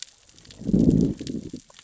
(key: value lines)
label: biophony, growl
recorder: SoundTrap 600 or HydroMoth